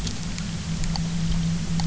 {"label": "anthrophony, boat engine", "recorder": "SoundTrap 300"}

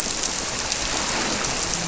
{"label": "biophony, grouper", "recorder": "SoundTrap 300"}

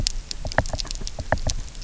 {"label": "biophony, knock", "recorder": "SoundTrap 300"}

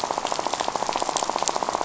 {"label": "biophony, rattle", "recorder": "SoundTrap 500"}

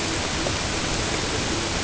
{"label": "ambient", "recorder": "HydroMoth"}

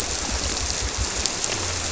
{"label": "biophony", "recorder": "SoundTrap 300"}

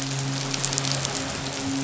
{"label": "biophony, midshipman", "recorder": "SoundTrap 500"}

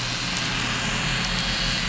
{"label": "anthrophony, boat engine", "recorder": "SoundTrap 500"}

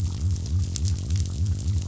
{"label": "biophony", "recorder": "SoundTrap 500"}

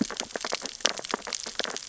{"label": "biophony, sea urchins (Echinidae)", "recorder": "SoundTrap 600 or HydroMoth"}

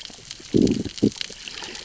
{"label": "biophony, growl", "recorder": "SoundTrap 600 or HydroMoth"}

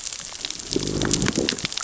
{"label": "biophony, growl", "recorder": "SoundTrap 600 or HydroMoth"}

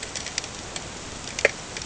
{"label": "ambient", "recorder": "HydroMoth"}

